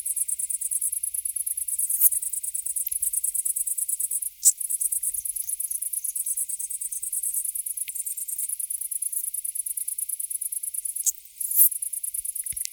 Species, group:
Eupholidoptera schmidti
Orthoptera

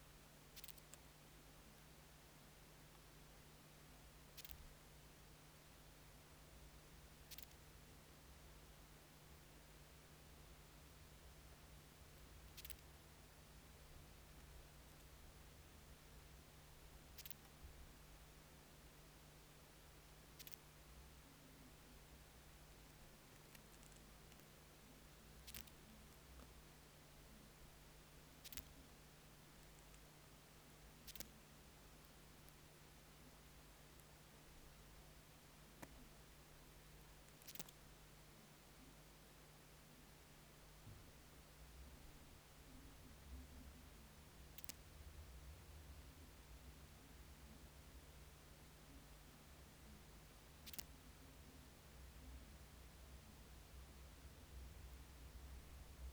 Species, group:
Leptophyes calabra
Orthoptera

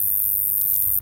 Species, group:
Neoconocephalus retusus
Orthoptera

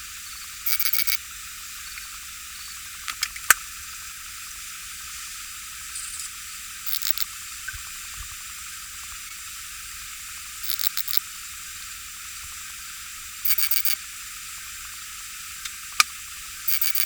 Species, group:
Poecilimon chopardi
Orthoptera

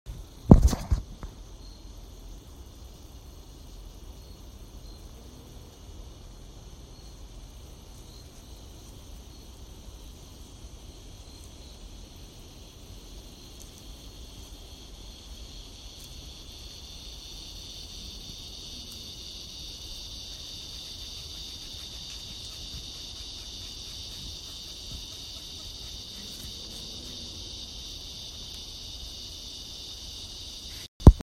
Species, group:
Diceroprocta grossa
Cicadidae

